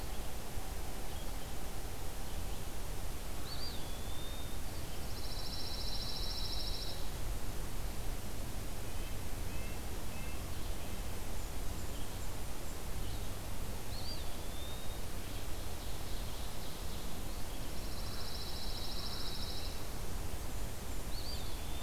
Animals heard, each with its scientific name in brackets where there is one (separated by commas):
Eastern Wood-Pewee (Contopus virens), Red-eyed Vireo (Vireo olivaceus), Red-breasted Nuthatch (Sitta canadensis), Ovenbird (Seiurus aurocapilla), Blackburnian Warbler (Setophaga fusca), Pine Warbler (Setophaga pinus)